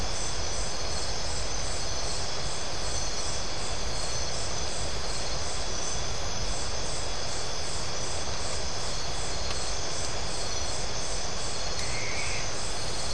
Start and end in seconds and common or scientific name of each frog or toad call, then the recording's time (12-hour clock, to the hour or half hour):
none
10:30pm